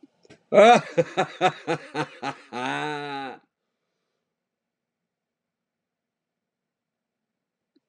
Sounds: Laughter